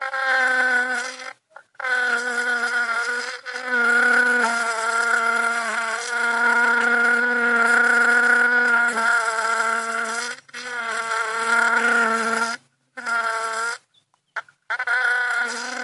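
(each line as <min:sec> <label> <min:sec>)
0:00.0 A fly buzzes loudly. 0:15.8
0:14.1 A bird chirps. 0:14.3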